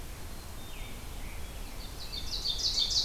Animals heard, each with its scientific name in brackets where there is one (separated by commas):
Black-capped Chickadee (Poecile atricapillus), Ovenbird (Seiurus aurocapilla), American Robin (Turdus migratorius)